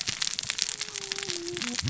{"label": "biophony, cascading saw", "recorder": "SoundTrap 600 or HydroMoth"}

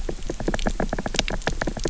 {"label": "biophony, knock", "recorder": "SoundTrap 300"}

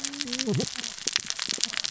{"label": "biophony, cascading saw", "recorder": "SoundTrap 600 or HydroMoth"}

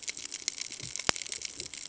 {"label": "ambient", "recorder": "HydroMoth"}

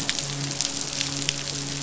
{"label": "biophony, midshipman", "recorder": "SoundTrap 500"}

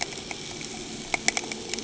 {"label": "anthrophony, boat engine", "recorder": "HydroMoth"}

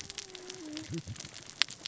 {"label": "biophony, cascading saw", "recorder": "SoundTrap 600 or HydroMoth"}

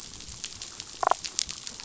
{"label": "biophony, damselfish", "recorder": "SoundTrap 500"}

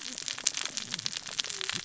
{"label": "biophony, cascading saw", "recorder": "SoundTrap 600 or HydroMoth"}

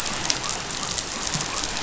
{"label": "biophony", "recorder": "SoundTrap 500"}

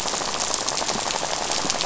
{"label": "biophony, rattle", "recorder": "SoundTrap 500"}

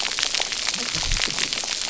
{"label": "biophony, cascading saw", "recorder": "SoundTrap 300"}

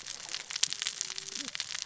{"label": "biophony, cascading saw", "recorder": "SoundTrap 600 or HydroMoth"}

